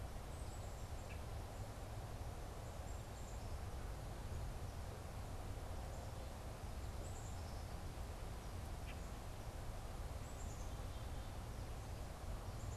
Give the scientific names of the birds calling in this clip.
Poecile atricapillus, Quiscalus quiscula